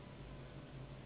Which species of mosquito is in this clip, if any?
Anopheles gambiae s.s.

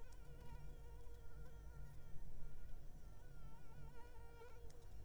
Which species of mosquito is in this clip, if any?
Anopheles arabiensis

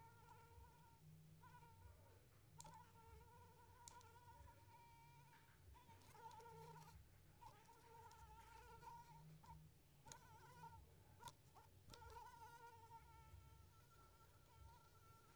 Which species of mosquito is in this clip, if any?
Anopheles squamosus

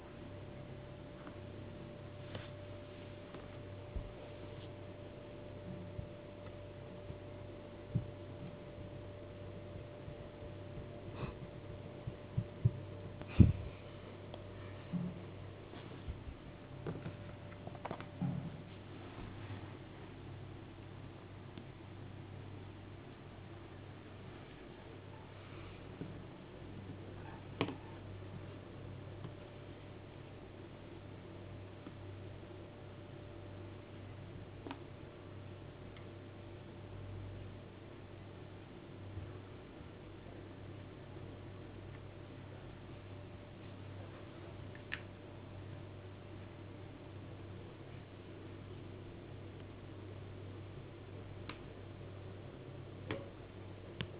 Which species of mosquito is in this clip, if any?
no mosquito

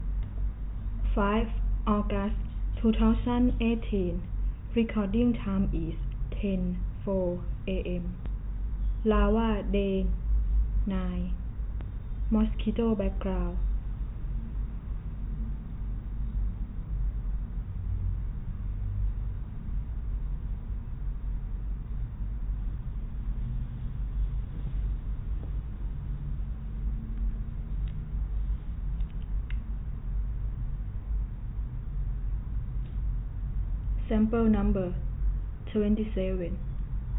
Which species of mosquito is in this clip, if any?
no mosquito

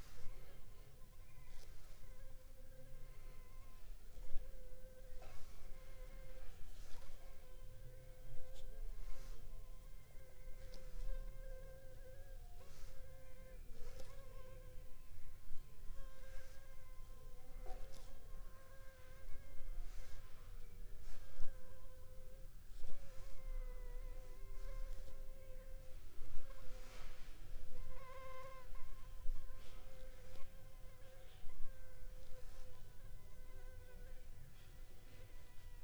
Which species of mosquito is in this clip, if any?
Anopheles funestus s.s.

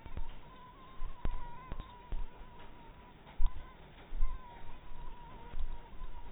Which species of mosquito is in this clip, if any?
mosquito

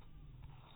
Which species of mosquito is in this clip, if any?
mosquito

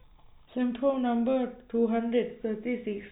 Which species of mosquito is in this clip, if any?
no mosquito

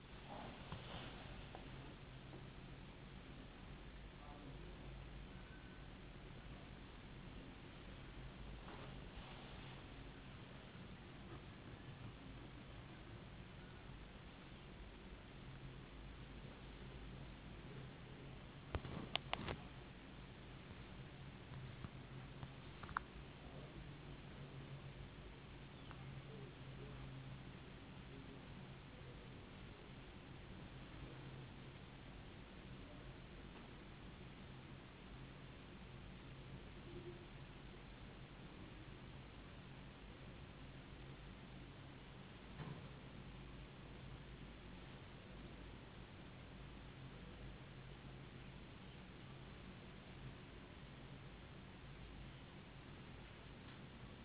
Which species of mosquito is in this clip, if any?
no mosquito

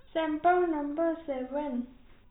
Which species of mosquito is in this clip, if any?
no mosquito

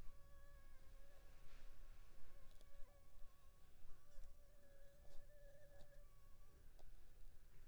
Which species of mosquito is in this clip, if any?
Anopheles funestus s.l.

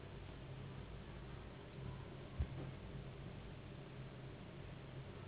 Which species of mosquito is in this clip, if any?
Anopheles gambiae s.s.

